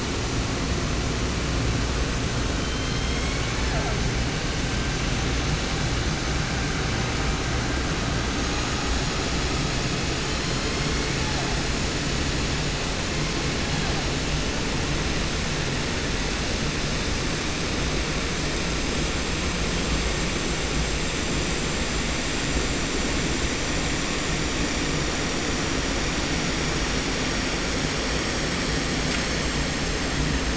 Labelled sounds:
2.5	4.0	killer whale, southern resident, J pod, call S01, 0.30 to 8.0 kHz
10.2	11.5	killer whale, 0.47 to 6.0 kHz
13.1	14.0	killer whale, 0.70 to 5.4 kHz

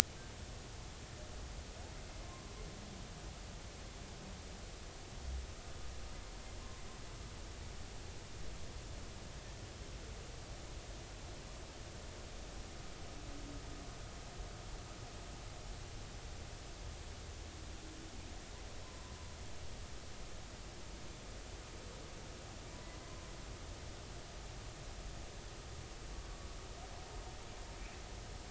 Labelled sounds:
18.8	19.2	humpback whale, 0.93 to 1.1 kHz

